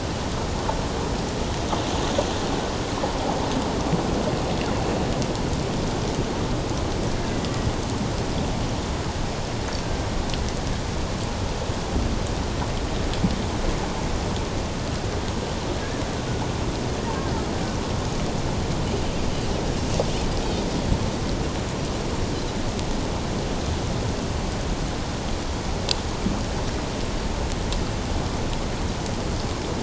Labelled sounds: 15.8	16.0	killer whale, Bigg's (transient), 1.6 to 1.8 kHz

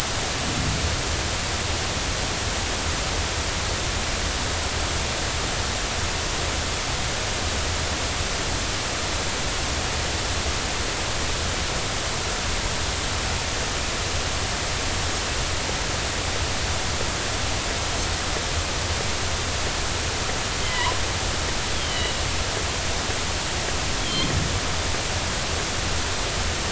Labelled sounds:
20.6	21.0	killer whale, northern resident, G clan, 0.93 to 3.2 kHz
21.7	22.1	killer whale, northern resident, G clan, 2.8 to 3.5 kHz
24.0	24.3	killer whale, northern resident, G clan, 3.1 to 3.5 kHz

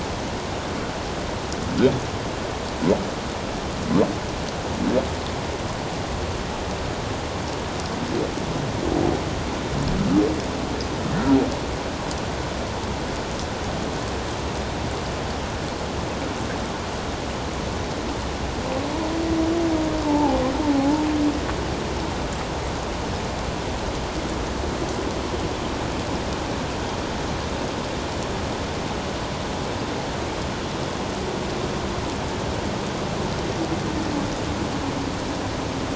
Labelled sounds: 20.1	21.0	humpback whale, 0.78 to 0.94 kHz

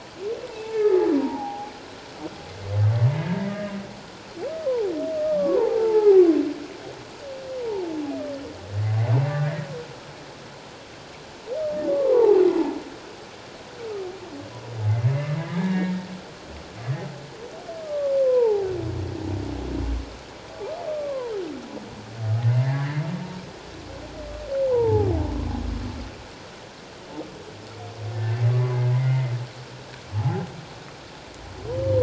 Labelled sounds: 1.2	1.7	humpback whale, 0.78 to 1.0 kHz
3.1	3.5	humpback whale, 1.6 to 1.8 kHz
4.7	6.2	humpback whale, 0.78 to 1.3 kHz
9.3	9.7	humpback whale, 1.8 to 2.0 kHz
11.9	12.4	humpback whale, 0.78 to 1.2 kHz
15.6	16.0	humpback whale, 1.6 to 2.3 kHz
17.8	18.7	humpback whale, 0.78 to 1.3 kHz
20.9	21.3	humpback whale, 0.91 to 1.2 kHz
22.5	23.0	humpback whale, 1.6 to 2.2 kHz
24.7	25.1	humpback whale, 0.78 to 1.1 kHz
28.1	29.3	humpback whale, 1.5 to 2.2 kHz
30.1	30.4	humpback whale, 0.78 to 0.91 kHz

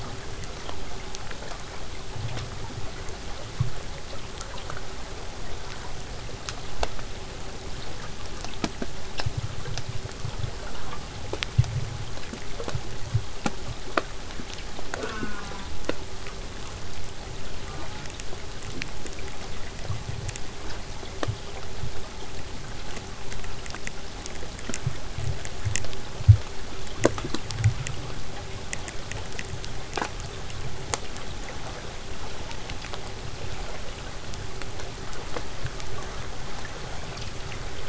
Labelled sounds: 14.9	15.7	killer whale, southern resident, J pod, call S04, 0.15 to 4.0 kHz
17.6	18.1	killer whale, southern resident, J pod, call S04, 0.12 to 1.8 kHz

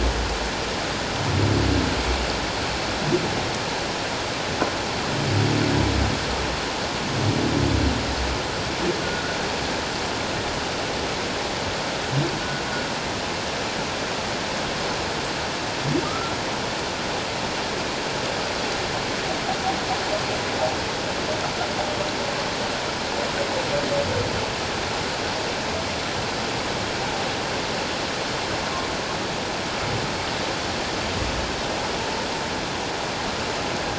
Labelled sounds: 16.0	16.3	humpback whale, 1.2 to 1.5 kHz

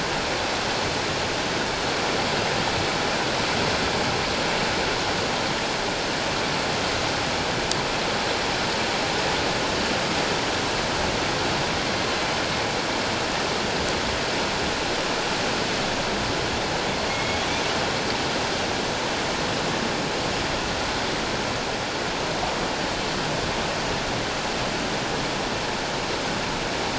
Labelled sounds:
17.1	17.4	killer whale, northern resident, A clan, AA subclan, 2.1 to 2.2 kHz

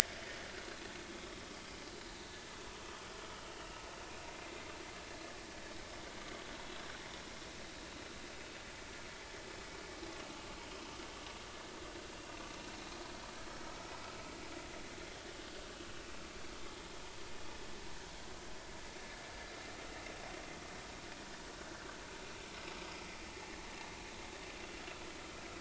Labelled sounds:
4.3	4.5	vessel noise, 2.0 to 2.2 kHz

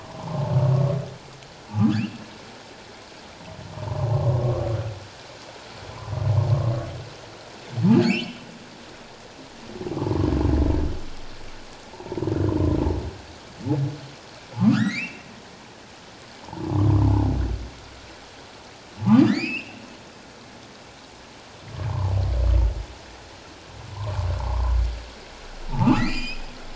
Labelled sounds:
0.0	0.5	humpback whale, 0.78 to 1.2 kHz
1.7	2.0	humpback whale, 1.1 to 1.8 kHz
4.1	4.4	humpback whale, 0.78 to 1.1 kHz
8.0	8.4	humpback whale, 2.1 to 3.2 kHz
14.5	15.2	humpback whale, 0.78 to 4.4 kHz
16.4	17.0	humpback whale, 0.78 to 1.2 kHz
19.0	19.8	humpback whale, 0.78 to 5.4 kHz
21.9	22.1	humpback whale, 0.78 to 1.1 kHz
23.9	24.8	humpback whale, 0.78 to 1.2 kHz
25.7	26.4	humpback whale, 0.81 to 5.2 kHz

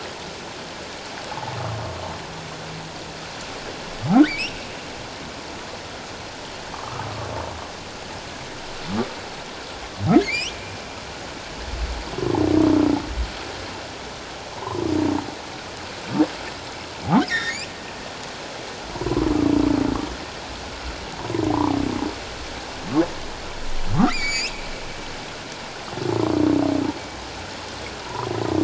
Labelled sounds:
4.2	4.6	humpback whale, 1.7 to 3.2 kHz
6.7	7.1	humpback whale, 0.97 to 1.3 kHz
10.2	10.5	humpback whale, 2.0 to 3.4 kHz
14.5	14.8	humpback whale, 0.81 to 1.1 kHz
17.3	17.6	humpback whale, 1.6 to 3.8 kHz
21.5	21.8	humpback whale, 0.78 to 1.2 kHz
24.0	24.6	humpback whale, 1.8 to 7.5 kHz
28.0	28.3	humpback whale, 0.84 to 1.1 kHz

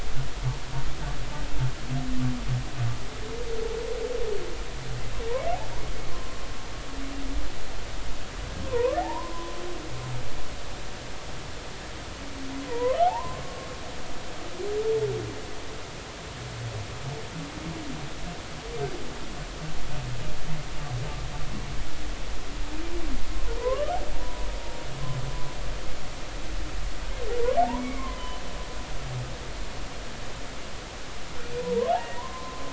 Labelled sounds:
8.6	9.6	humpback whale, 0.80 to 1.2 kHz
12.7	13.7	humpback whale, 0.80 to 2.2 kHz
23.6	24.5	humpback whale, 0.90 to 1.3 kHz
27.6	28.4	humpback whale, 0.80 to 2.3 kHz
31.6	32.7	humpback whale, 0.90 to 2.0 kHz

